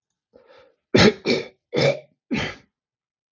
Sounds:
Throat clearing